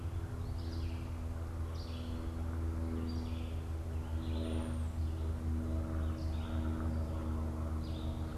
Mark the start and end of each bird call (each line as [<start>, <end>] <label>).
[0.00, 8.37] Red-eyed Vireo (Vireo olivaceus)
[4.37, 5.17] unidentified bird